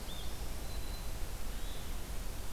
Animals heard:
Black-throated Green Warbler (Setophaga virens), Hermit Thrush (Catharus guttatus)

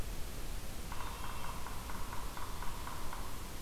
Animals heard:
Yellow-bellied Sapsucker (Sphyrapicus varius)

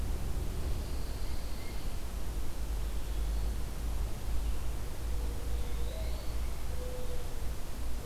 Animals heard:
Eastern Wood-Pewee (Contopus virens), Pine Warbler (Setophaga pinus), Mourning Dove (Zenaida macroura)

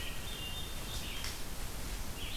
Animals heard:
Red-eyed Vireo (Vireo olivaceus), Hermit Thrush (Catharus guttatus)

